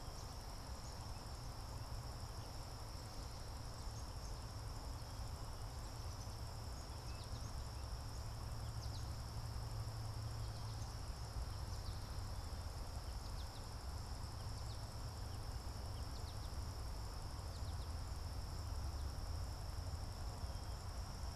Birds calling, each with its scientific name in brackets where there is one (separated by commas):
Black-capped Chickadee (Poecile atricapillus), American Goldfinch (Spinus tristis)